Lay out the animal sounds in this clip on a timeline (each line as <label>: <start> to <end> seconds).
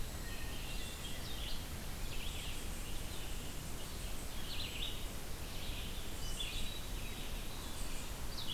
Eastern Wood-Pewee (Contopus virens): 0.0 to 0.6 seconds
Red-eyed Vireo (Vireo olivaceus): 0.0 to 8.5 seconds
Hermit Thrush (Catharus guttatus): 0.3 to 1.5 seconds
Hermit Thrush (Catharus guttatus): 6.0 to 7.4 seconds